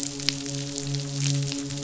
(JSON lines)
{"label": "biophony, midshipman", "recorder": "SoundTrap 500"}